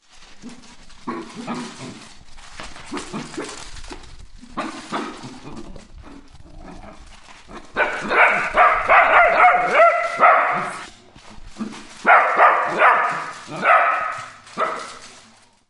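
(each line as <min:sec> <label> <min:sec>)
0:00.0 A chaotic mix of loud dog barks and growls with occasional sharp woofs. 0:07.7
0:07.8 A chaotic mix of loud dog barks, growls, and occasional sharp woofs creating an intense, noisy atmosphere. 0:10.9
0:11.6 A chaotic mix of loud dog barks and growls with occasional sharp woofs. 0:15.7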